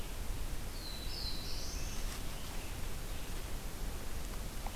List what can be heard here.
Black-throated Blue Warbler